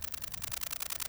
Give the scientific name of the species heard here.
Conocephalus fuscus